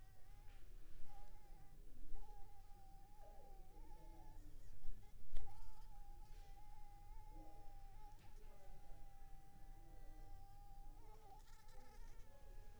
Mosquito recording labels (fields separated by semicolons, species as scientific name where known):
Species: Anopheles funestus s.s.; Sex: female; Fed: unfed; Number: one; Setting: cup